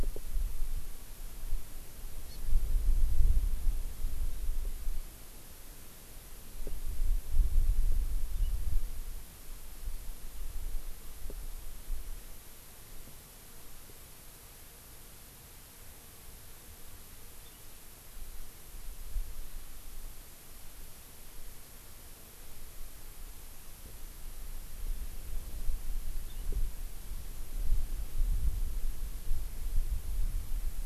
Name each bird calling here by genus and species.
Chlorodrepanis virens, Haemorhous mexicanus